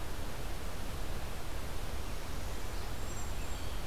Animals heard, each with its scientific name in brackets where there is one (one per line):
Cedar Waxwing (Bombycilla cedrorum)
American Robin (Turdus migratorius)